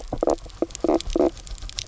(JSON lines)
{"label": "biophony, knock croak", "recorder": "SoundTrap 300"}